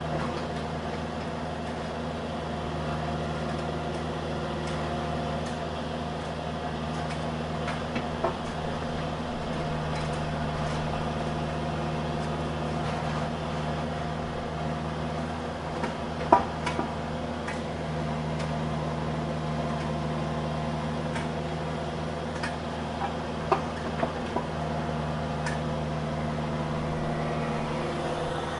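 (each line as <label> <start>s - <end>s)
An engine is running in the distance. 0.0s - 28.6s
The sound of digging with a shovel in the background. 5.1s - 14.3s
A shovel clanking. 16.1s - 16.6s
The sound of digging with a shovel in the background. 17.8s - 23.2s
A shovel clanking. 23.4s - 23.6s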